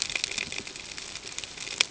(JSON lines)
{"label": "ambient", "recorder": "HydroMoth"}